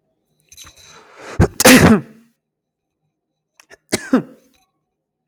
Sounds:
Sneeze